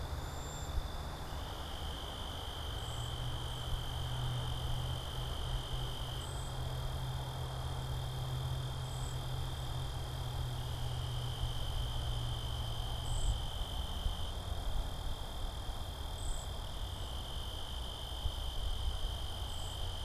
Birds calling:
Cedar Waxwing (Bombycilla cedrorum)

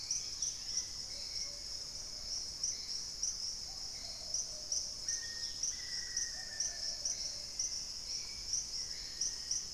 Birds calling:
unidentified bird, Thrush-like Wren (Campylorhynchus turdinus), Black-faced Antthrush (Formicarius analis), Hauxwell's Thrush (Turdus hauxwelli), Plumbeous Pigeon (Patagioenas plumbea), Dusky-capped Greenlet (Pachysylvia hypoxantha)

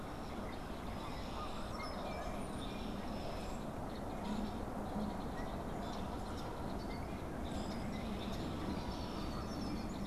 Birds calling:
Brown-headed Cowbird (Molothrus ater), unidentified bird, Red-winged Blackbird (Agelaius phoeniceus), Canada Goose (Branta canadensis)

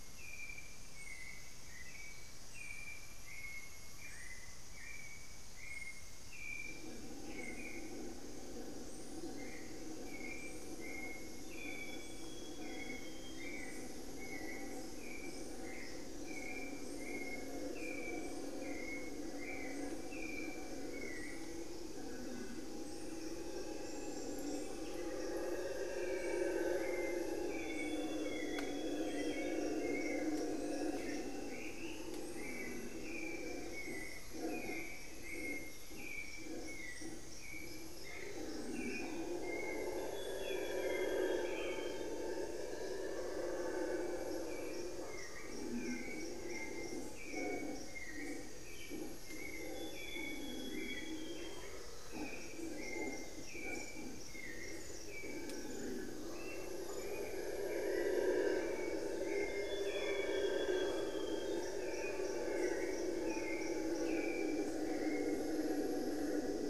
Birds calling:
Amazonian Pygmy-Owl (Glaucidium hardyi), Hauxwell's Thrush (Turdus hauxwelli), Long-winged Antwren (Myrmotherula longipennis), Amazonian Grosbeak (Cyanoloxia rothschildii)

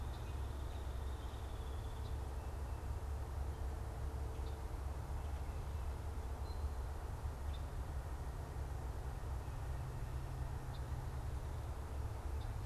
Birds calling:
Red-winged Blackbird (Agelaius phoeniceus), Hairy Woodpecker (Dryobates villosus)

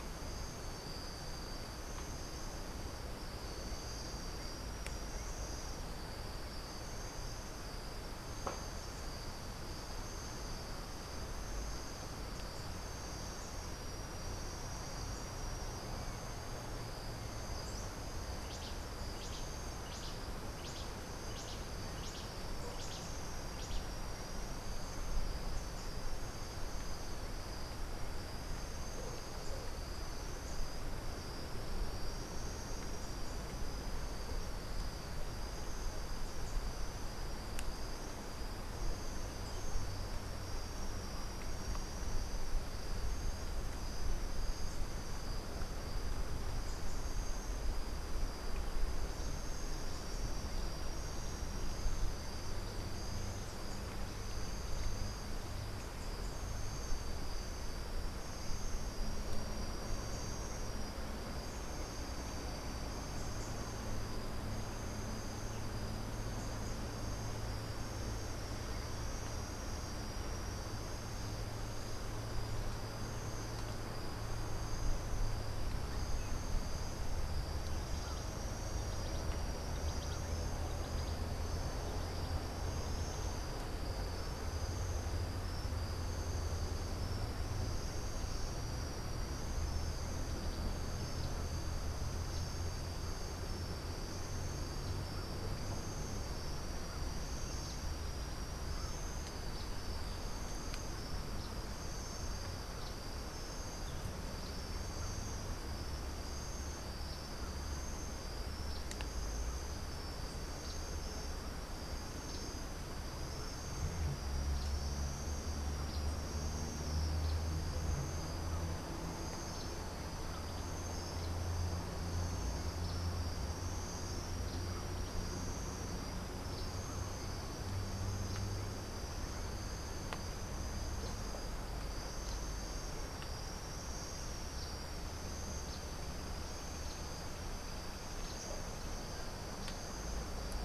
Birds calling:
Cabanis's Wren (Cantorchilus modestus)

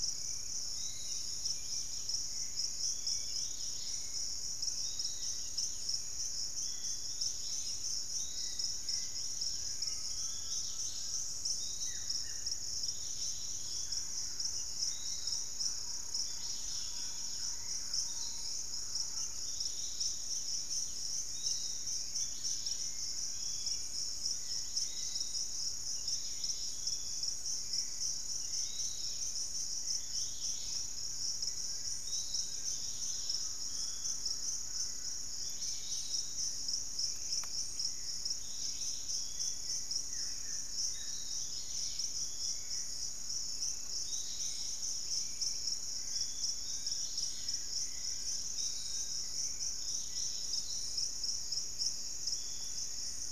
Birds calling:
Buff-throated Woodcreeper (Xiphorhynchus guttatus), Thrush-like Wren (Campylorhynchus turdinus), Hauxwell's Thrush (Turdus hauxwelli), Piratic Flycatcher (Legatus leucophaius), Undulated Tinamou (Crypturellus undulatus), Dusky-capped Greenlet (Pachysylvia hypoxantha), unidentified bird, Fasciated Antshrike (Cymbilaimus lineatus), Gray Antwren (Myrmotherula menetriesii)

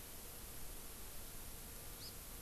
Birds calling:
Hawaii Amakihi (Chlorodrepanis virens)

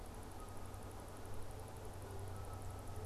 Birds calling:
Canada Goose (Branta canadensis)

